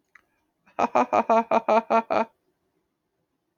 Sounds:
Laughter